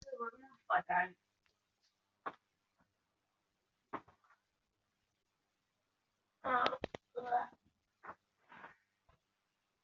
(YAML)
expert_labels:
- quality: no cough present
  dyspnea: false
  wheezing: false
  stridor: false
  choking: false
  congestion: false
  nothing: false
gender: female
respiratory_condition: false
fever_muscle_pain: false
status: healthy